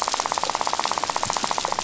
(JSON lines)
{"label": "biophony, rattle", "recorder": "SoundTrap 500"}